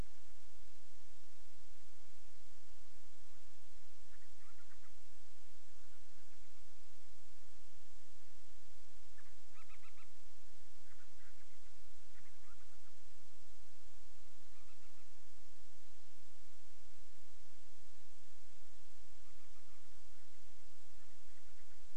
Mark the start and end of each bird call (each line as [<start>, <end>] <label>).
[3.96, 5.06] Band-rumped Storm-Petrel (Hydrobates castro)
[9.06, 10.16] Band-rumped Storm-Petrel (Hydrobates castro)
[10.76, 13.06] Band-rumped Storm-Petrel (Hydrobates castro)
[14.46, 15.16] Band-rumped Storm-Petrel (Hydrobates castro)
[19.06, 21.86] Band-rumped Storm-Petrel (Hydrobates castro)